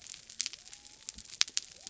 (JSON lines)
{"label": "biophony", "recorder": "SoundTrap 300"}